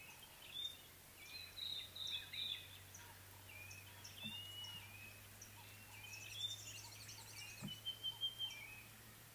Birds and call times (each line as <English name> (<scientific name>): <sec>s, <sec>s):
White-browed Robin-Chat (Cossypha heuglini): 2.2s
Sulphur-breasted Bushshrike (Telophorus sulfureopectus): 7.9s